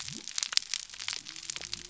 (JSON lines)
{"label": "biophony", "recorder": "SoundTrap 300"}